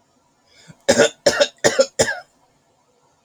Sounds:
Cough